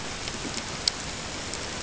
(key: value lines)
label: ambient
recorder: HydroMoth